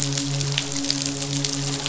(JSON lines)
{"label": "biophony, midshipman", "recorder": "SoundTrap 500"}